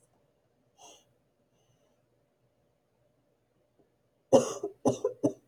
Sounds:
Sniff